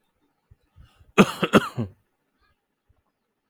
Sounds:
Cough